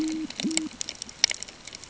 {"label": "ambient", "recorder": "HydroMoth"}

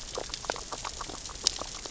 {"label": "biophony, grazing", "recorder": "SoundTrap 600 or HydroMoth"}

